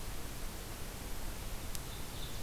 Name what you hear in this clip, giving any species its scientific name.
Seiurus aurocapilla